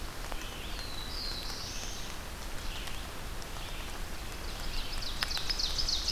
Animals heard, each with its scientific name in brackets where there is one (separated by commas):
Black-throated Blue Warbler (Setophaga caerulescens), Red-eyed Vireo (Vireo olivaceus), Ovenbird (Seiurus aurocapilla)